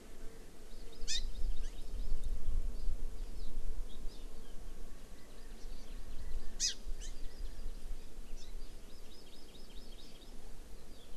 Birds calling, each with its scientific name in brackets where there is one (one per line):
Hawaii Amakihi (Chlorodrepanis virens)